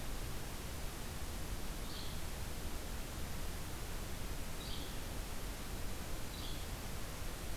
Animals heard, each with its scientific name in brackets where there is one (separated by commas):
Yellow-bellied Flycatcher (Empidonax flaviventris)